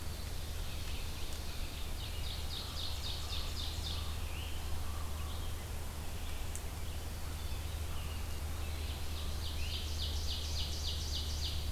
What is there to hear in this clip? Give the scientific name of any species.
Catharus fuscescens, Myiarchus crinitus, Vireo olivaceus, Seiurus aurocapilla, Corvus corax